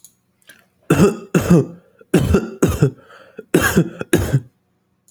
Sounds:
Cough